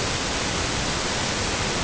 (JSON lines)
{"label": "ambient", "recorder": "HydroMoth"}